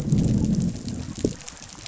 {"label": "biophony, growl", "recorder": "SoundTrap 500"}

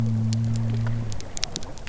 {"label": "biophony", "recorder": "SoundTrap 300"}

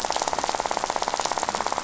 {"label": "biophony, rattle", "recorder": "SoundTrap 500"}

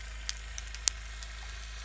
{"label": "anthrophony, boat engine", "recorder": "SoundTrap 300"}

